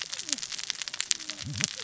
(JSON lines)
{"label": "biophony, cascading saw", "recorder": "SoundTrap 600 or HydroMoth"}